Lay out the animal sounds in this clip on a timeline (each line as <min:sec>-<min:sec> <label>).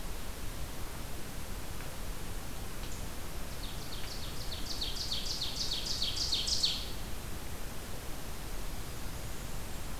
0:03.5-0:07.2 Ovenbird (Seiurus aurocapilla)
0:08.4-0:10.0 Blackburnian Warbler (Setophaga fusca)